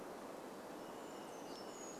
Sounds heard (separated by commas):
Varied Thrush song, warbler song